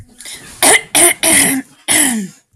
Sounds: Throat clearing